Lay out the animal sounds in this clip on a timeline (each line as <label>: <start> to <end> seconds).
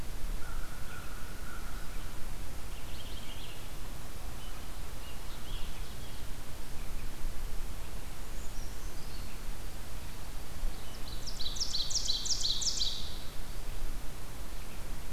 American Crow (Corvus brachyrhynchos): 0.2 to 2.3 seconds
Purple Finch (Haemorhous purpureus): 2.5 to 3.8 seconds
Purple Finch (Haemorhous purpureus): 4.9 to 6.4 seconds
Brown Creeper (Certhia americana): 8.1 to 9.4 seconds
Ovenbird (Seiurus aurocapilla): 10.6 to 13.3 seconds